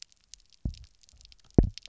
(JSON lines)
{"label": "biophony, double pulse", "recorder": "SoundTrap 300"}